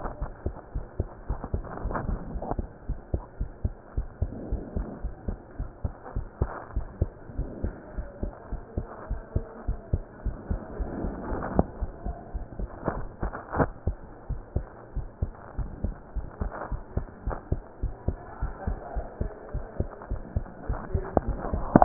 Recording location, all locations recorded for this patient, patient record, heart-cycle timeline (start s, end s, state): pulmonary valve (PV)
aortic valve (AV)+pulmonary valve (PV)+tricuspid valve (TV)+mitral valve (MV)
#Age: Child
#Sex: Female
#Height: 130.0 cm
#Weight: 24.8 kg
#Pregnancy status: False
#Murmur: Absent
#Murmur locations: nan
#Most audible location: nan
#Systolic murmur timing: nan
#Systolic murmur shape: nan
#Systolic murmur grading: nan
#Systolic murmur pitch: nan
#Systolic murmur quality: nan
#Diastolic murmur timing: nan
#Diastolic murmur shape: nan
#Diastolic murmur grading: nan
#Diastolic murmur pitch: nan
#Diastolic murmur quality: nan
#Outcome: Abnormal
#Campaign: 2015 screening campaign
0.00	2.86	unannotated
2.86	3.00	S1
3.00	3.10	systole
3.10	3.24	S2
3.24	3.40	diastole
3.40	3.52	S1
3.52	3.64	systole
3.64	3.76	S2
3.76	3.94	diastole
3.94	4.08	S1
4.08	4.18	systole
4.18	4.32	S2
4.32	4.50	diastole
4.50	4.64	S1
4.64	4.72	systole
4.72	4.86	S2
4.86	5.02	diastole
5.02	5.12	S1
5.12	5.24	systole
5.24	5.38	S2
5.38	5.58	diastole
5.58	5.70	S1
5.70	5.84	systole
5.84	5.94	S2
5.94	6.14	diastole
6.14	6.28	S1
6.28	6.38	systole
6.38	6.52	S2
6.52	6.74	diastole
6.74	6.88	S1
6.88	6.98	systole
6.98	7.12	S2
7.12	7.36	diastole
7.36	7.50	S1
7.50	7.60	systole
7.60	7.74	S2
7.74	7.96	diastole
7.96	8.06	S1
8.06	8.20	systole
8.20	8.32	S2
8.32	8.50	diastole
8.50	8.60	S1
8.60	8.74	systole
8.74	8.88	S2
8.88	9.08	diastole
9.08	9.22	S1
9.22	9.32	systole
9.32	9.46	S2
9.46	9.66	diastole
9.66	9.80	S1
9.80	9.92	systole
9.92	10.04	S2
10.04	10.24	diastole
10.24	10.38	S1
10.38	10.48	systole
10.48	10.62	S2
10.62	10.78	diastole
10.78	10.92	S1
10.92	11.02	systole
11.02	11.12	S2
11.12	11.28	diastole
11.28	11.42	S1
11.42	11.52	systole
11.52	11.66	S2
11.66	11.81	diastole
11.81	11.90	S1
11.90	12.04	systole
12.04	12.16	S2
12.16	12.32	diastole
12.32	12.42	S1
12.42	12.60	systole
12.60	12.70	S2
12.70	12.92	diastole
12.92	13.08	S1
13.08	13.22	systole
13.22	13.34	S2
13.34	13.56	diastole
13.56	13.72	S1
13.72	13.84	systole
13.84	13.98	S2
13.98	14.24	diastole
14.24	14.42	S1
14.42	14.54	systole
14.54	14.68	S2
14.68	14.94	diastole
14.94	15.08	S1
15.08	15.20	systole
15.20	15.34	S2
15.34	15.56	diastole
15.56	15.72	S1
15.72	15.82	systole
15.82	15.96	S2
15.96	16.14	diastole
16.14	16.28	S1
16.28	16.41	systole
16.41	16.52	S2
16.52	16.70	diastole
16.70	16.80	S1
16.80	16.94	systole
16.94	17.08	S2
17.08	17.26	diastole
17.26	17.38	S1
17.38	17.50	systole
17.50	17.64	S2
17.64	17.84	diastole
17.84	17.96	S1
17.96	18.06	systole
18.06	18.20	S2
18.20	18.40	diastole
18.40	18.54	S1
18.54	18.68	systole
18.68	18.78	S2
18.78	18.95	diastole
18.95	19.06	S1
19.06	19.20	systole
19.20	19.32	S2
19.32	19.54	diastole
19.54	19.66	S1
19.66	19.78	systole
19.78	19.90	S2
19.90	20.10	diastole
20.10	20.24	S1
20.24	20.34	systole
20.34	20.48	S2
20.48	20.61	diastole
20.61	21.84	unannotated